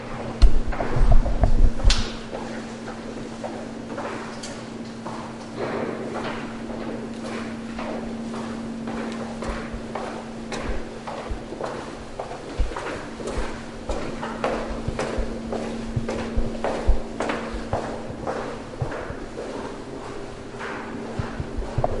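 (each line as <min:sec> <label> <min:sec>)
0:00.0 A loud thumping sound. 0:02.2
0:00.0 An air conditioner is running. 0:02.2
0:00.0 Footsteps sounding loudly. 0:02.2
0:02.2 Constant sound of air conditioning. 0:22.0
0:02.2 Footsteps at a constant rhythm. 0:22.0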